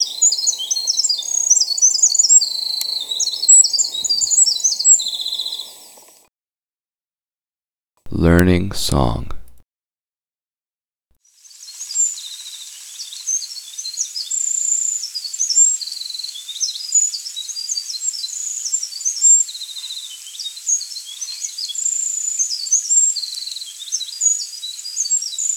What animal is making noise?
bird